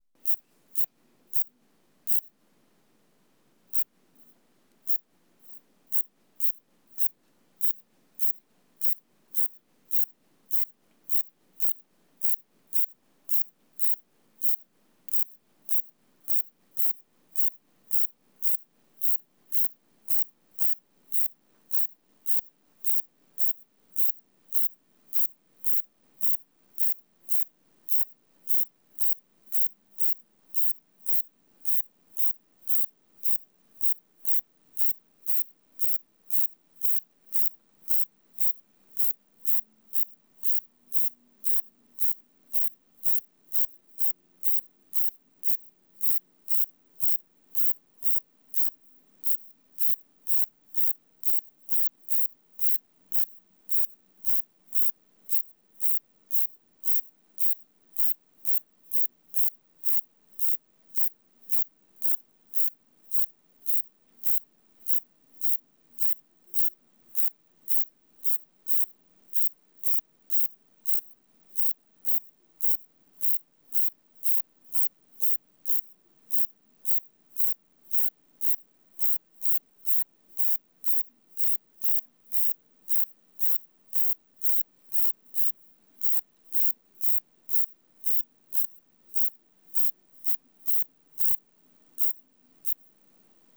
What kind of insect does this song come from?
orthopteran